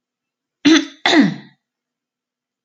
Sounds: Throat clearing